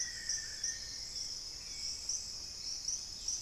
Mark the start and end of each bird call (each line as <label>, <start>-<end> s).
Long-winged Antwren (Myrmotherula longipennis), 0.0-2.2 s
Black-faced Antthrush (Formicarius analis), 0.0-2.8 s
Dusky-capped Greenlet (Pachysylvia hypoxantha), 0.0-3.4 s
Hauxwell's Thrush (Turdus hauxwelli), 0.0-3.4 s